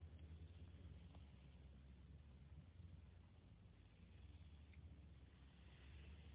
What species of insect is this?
Chorthippus biguttulus